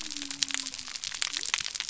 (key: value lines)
label: biophony
recorder: SoundTrap 300